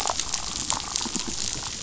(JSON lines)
{"label": "biophony, damselfish", "recorder": "SoundTrap 500"}